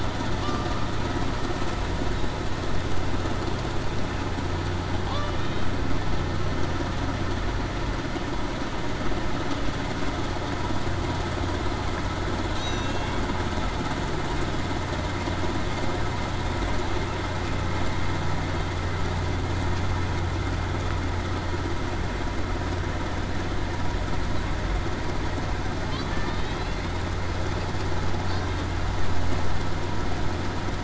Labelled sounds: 12.6	13.2	killer whale, Bigg's (transient), 2.6 to 2.8 kHz

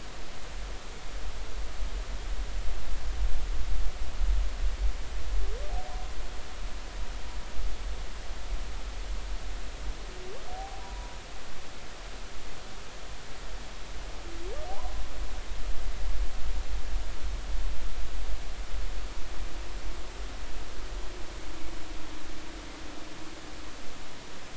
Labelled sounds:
10.5	11.2	humpback whale, 0.80 to 1.0 kHz
14.7	14.9	humpback whale, 0.80 to 1.1 kHz

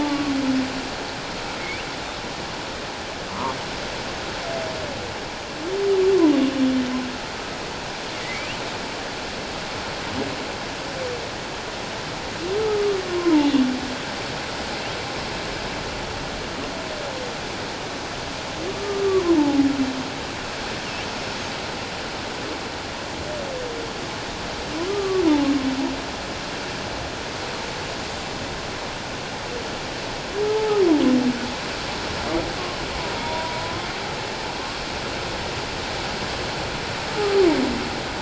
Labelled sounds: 0.0	0.3	humpback whale, 1.1 to 1.2 kHz
1.6	1.9	humpback whale, 2.0 to 2.9 kHz
3.3	3.6	humpback whale, 0.88 to 1.3 kHz
8.3	8.6	humpback whale, 2.2 to 3.1 kHz
12.6	13.5	humpback whale, 0.78 to 1.3 kHz
18.7	19.6	humpback whale, 0.81 to 1.2 kHz
24.9	25.2	humpback whale, 1.1 to 1.2 kHz
30.5	30.8	humpback whale, 0.78 to 0.91 kHz
33.2	33.9	humpback whale, 0.91 to 3.6 kHz

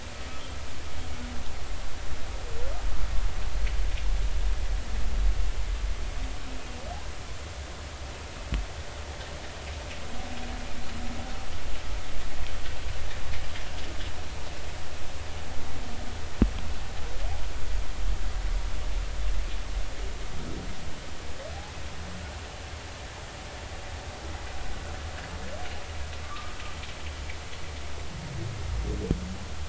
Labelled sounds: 26.2	26.6	humpback whale, 1.1 to 1.3 kHz

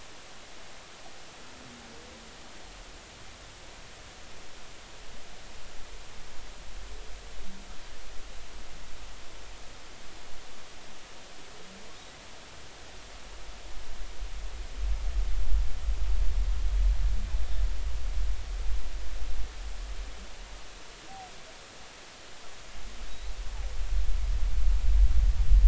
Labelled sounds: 23.1	23.4	humpback whale, 3.7 to 4.2 kHz

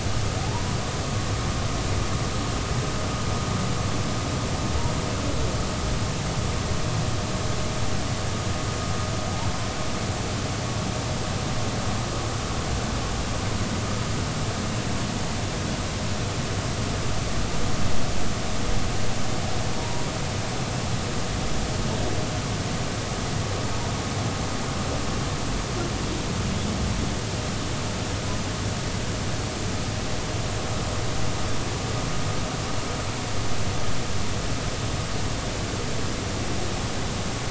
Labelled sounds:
0.4	0.8	humpback whale, 0.80 to 1.1 kHz
19.8	20.1	humpback whale, 0.86 to 0.99 kHz

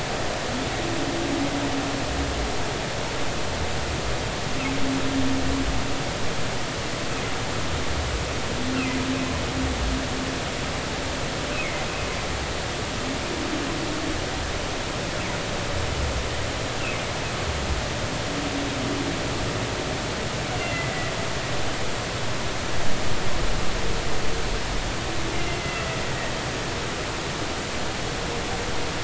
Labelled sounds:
20.6	20.9	humpback whale, 2.0 to 2.8 kHz
25.4	25.6	humpback whale, 2.7 to 2.8 kHz
26.0	26.3	humpback whale, 1.8 to 2.0 kHz

